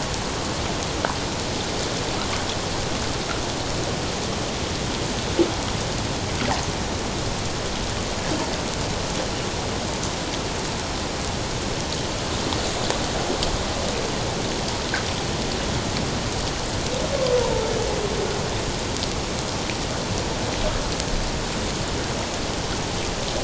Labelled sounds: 17.4	17.7	humpback whale, 0.84 to 1.0 kHz

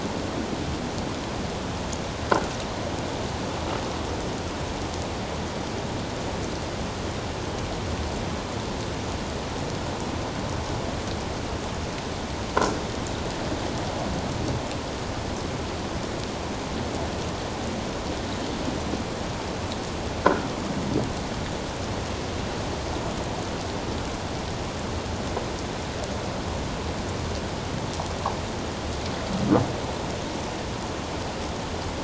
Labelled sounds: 20.2	20.5	croaking sound likely from a nearby submerged object, 1.3 to 1.7 kHz

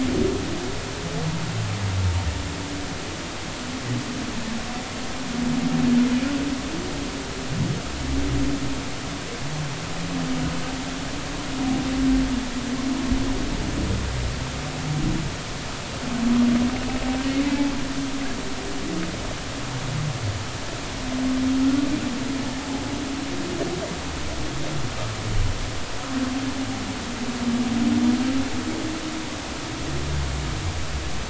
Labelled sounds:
17.5	17.7	humpback whale, 0.80 to 0.93 kHz

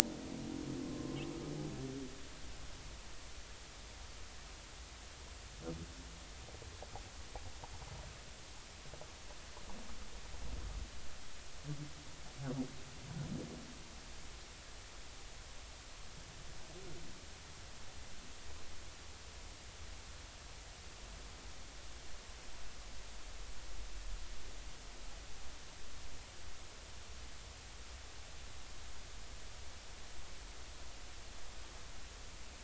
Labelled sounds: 0.8	1.2	humpback whale, 0.99 to 1.1 kHz

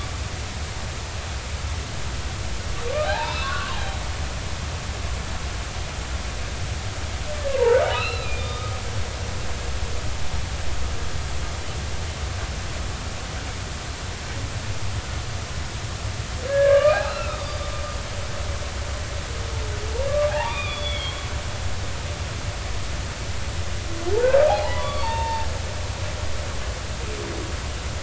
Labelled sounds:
3.0	4.0	humpback whale, 0.80 to 4.2 kHz
7.4	8.8	humpback whale, 1.2 to 4.2 kHz
16.5	17.4	humpback whale, 1.1 to 2.8 kHz
20.3	21.2	humpback whale, 0.80 to 3.7 kHz
21.8	22.1	humpback whale, 2.1 to 2.3 kHz
24.5	25.5	humpback whale, 0.80 to 3.7 kHz

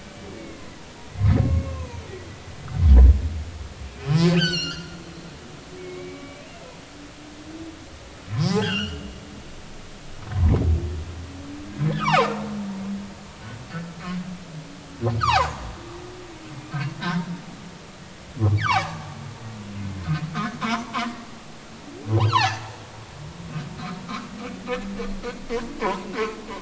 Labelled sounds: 0.0	0.7	humpback whale, 2.0 to 2.4 kHz
1.4	2.0	humpback whale, 0.90 to 2.6 kHz
4.3	5.0	humpback whale, 1.3 to 6.5 kHz
5.8	6.8	humpback whale, 1.1 to 2.8 kHz
8.3	9.0	humpback whale, 0.80 to 3.4 kHz
10.3	10.6	humpback whale, 0.90 to 1.2 kHz
11.9	12.3	humpback whale, 0.80 to 1.8 kHz
15.2	15.6	humpback whale, 0.80 to 1.6 kHz
18.6	19.0	humpback whale, 0.80 to 2.4 kHz
22.2	22.6	humpback whale, 0.80 to 3.4 kHz
24.0	24.3	humpback whale, 0.99 to 1.4 kHz
25.8	26.1	humpback whale, 0.80 to 1.1 kHz

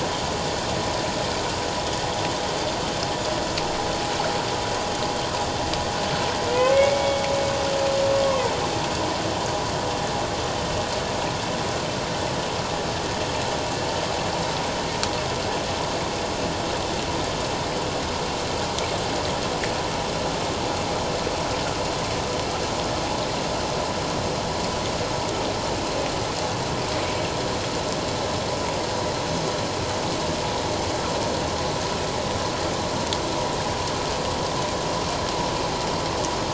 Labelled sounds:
6.5	7.3	humpback whale, 1.9 to 2.3 kHz

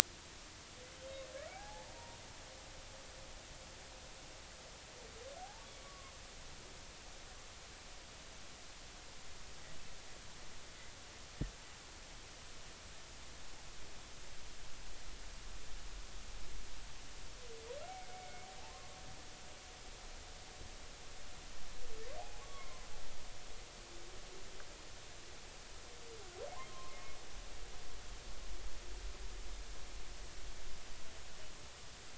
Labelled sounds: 1.5	2.2	humpback whale, 0.80 to 0.99 kHz
5.4	6.1	humpback whale, 0.80 to 1.2 kHz
17.8	18.5	humpback whale, 2.1 to 2.3 kHz
22.2	22.9	humpback whale, 0.80 to 2.3 kHz
26.7	27.2	humpback whale, 0.99 to 2.2 kHz

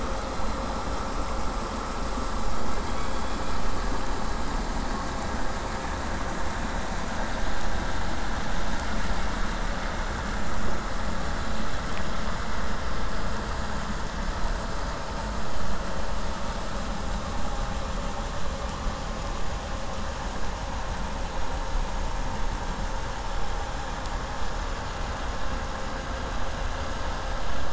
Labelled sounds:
2.8	3.7	killer whale, southern resident, K pod, call S16, 2.2 to 3.5 kHz

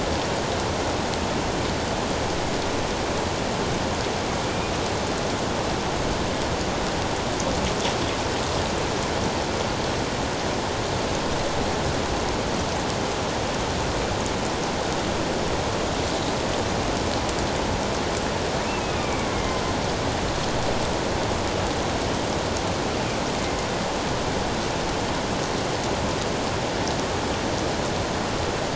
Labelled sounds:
18.7	19.3	killer whale, northern resident, A clan, AA subclan, A04 pod, 2.2 to 2.8 kHz

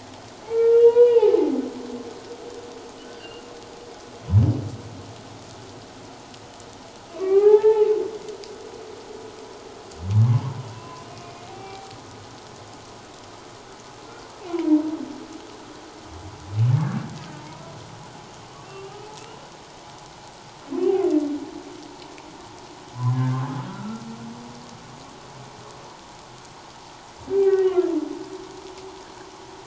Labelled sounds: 0.4	1.5	humpback whale, 0.78 to 4.0 kHz
3.2	3.4	humpback whale, 2.7 to 3.0 kHz
7.1	7.9	humpback whale, 0.78 to 2.6 kHz
10.7	12.0	humpback whale, 0.78 to 2.8 kHz
14.4	14.8	humpback whale, 0.88 to 2.7 kHz
18.6	19.1	humpback whale, 2.6 to 3.0 kHz
23.0	24.0	humpback whale, 0.94 to 1.7 kHz
27.3	27.7	humpback whale, 1.8 to 2.4 kHz

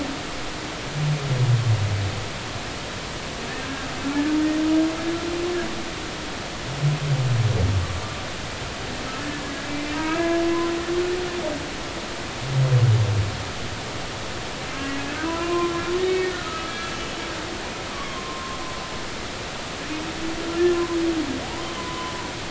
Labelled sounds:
9.9	10.7	humpback whale, 0.96 to 1.8 kHz
15.2	15.7	humpback whale, 0.93 to 1.1 kHz
16.0	16.7	humpback whale, 1.2 to 2.3 kHz
17.9	18.6	humpback whale, 0.99 to 1.2 kHz
21.8	22.1	humpback whale, 0.96 to 1.1 kHz

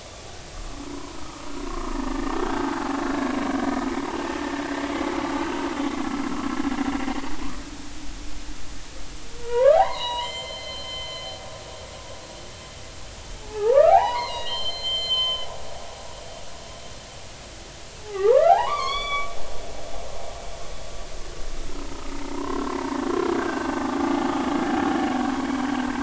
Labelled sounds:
0.9	2.8	humpback whale, 0.93 to 1.9 kHz
4.9	5.6	humpback whale, 1.9 to 3.1 kHz
9.4	11.3	humpback whale, 0.80 to 7.3 kHz
13.5	15.5	humpback whale, 0.80 to 7.3 kHz
18.0	19.3	humpback whale, 0.80 to 5.8 kHz
21.9	22.6	humpback whale, 0.86 to 1.3 kHz
23.3	23.7	humpback whale, 1.4 to 1.7 kHz

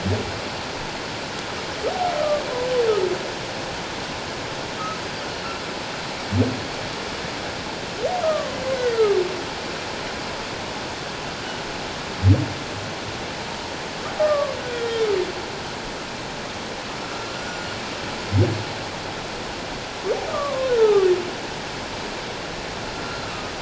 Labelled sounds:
2.2	2.4	humpback whale, 1.1 to 1.3 kHz
8.2	9.2	humpback whale, 0.97 to 2.2 kHz
14.2	15.1	humpback whale, 1.0 to 3.8 kHz
17.0	17.6	humpback whale, 1.3 to 5.8 kHz
20.3	21.1	humpback whale, 1.0 to 1.5 kHz

